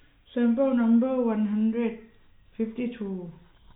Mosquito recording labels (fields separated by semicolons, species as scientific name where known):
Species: no mosquito; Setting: cup